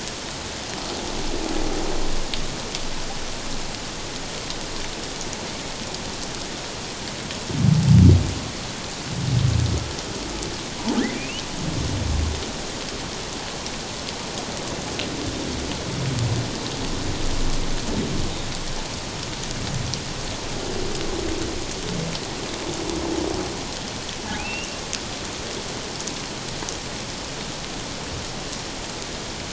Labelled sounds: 10.9	11.4	humpback whale, 1.2 to 3.1 kHz
24.4	24.7	humpback whale, 2.3 to 3.0 kHz

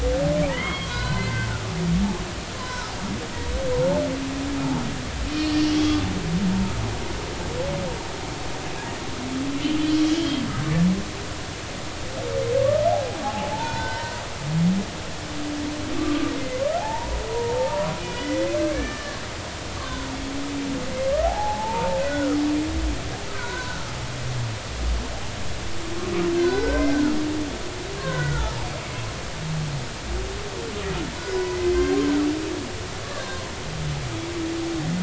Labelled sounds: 0.5	1.5	humpback whale, 0.86 to 4.7 kHz
2.6	2.9	humpback whale, 0.93 to 1.6 kHz
10.1	10.5	humpback whale, 3.1 to 3.3 kHz
13.5	14.5	humpback whale, 0.80 to 5.1 kHz
16.0	19.2	humpback whale, 0.80 to 3.1 kHz
19.8	20.1	humpback whale, 0.99 to 1.6 kHz
21.2	22.3	humpback whale, 0.80 to 2.1 kHz
23.3	23.9	humpback whale, 0.90 to 1.6 kHz
26.4	27.2	humpback whale, 1.2 to 5.1 kHz
28.0	28.7	humpback whale, 0.80 to 1.7 kHz
31.3	32.0	humpback whale, 0.93 to 1.6 kHz

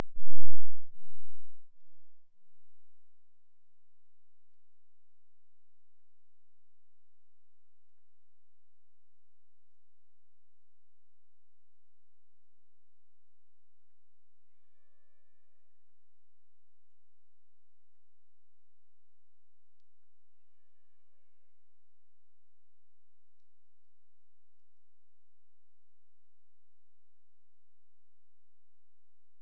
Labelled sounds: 7.2	8.2	killer whale, Bigg's (transient), AT1 transient, 1.1 to 3.0 kHz
14.4	16.0	killer whale, Bigg's (transient), AT1 transient, 0.44 to 3.7 kHz
20.3	21.8	killer whale, Bigg's (transient), AT1 transient, 0.44 to 4.2 kHz

